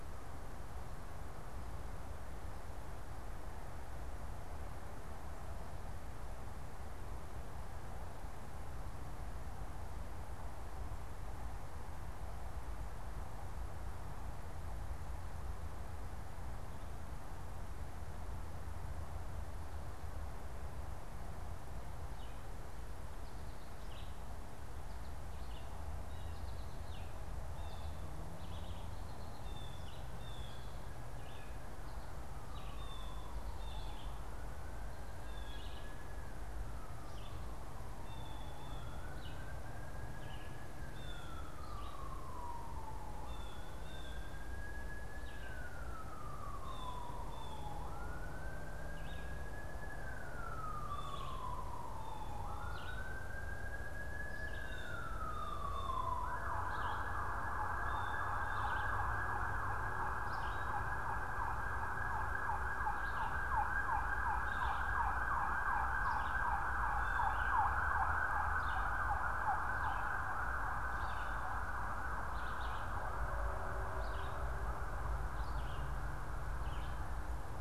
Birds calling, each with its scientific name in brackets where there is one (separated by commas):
American Goldfinch (Spinus tristis), Blue Jay (Cyanocitta cristata), Red-eyed Vireo (Vireo olivaceus)